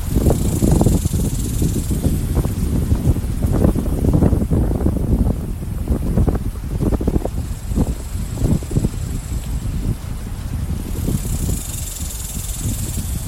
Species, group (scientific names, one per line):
Neotibicen superbus
Cicadidae